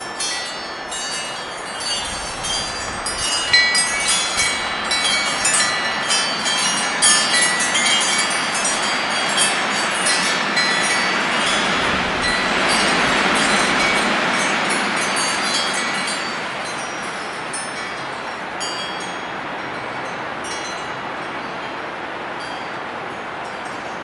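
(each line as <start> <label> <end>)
0.0 Wind chimes gradually fade away. 23.3
0.0 Traffic noise rising and falling over time. 24.0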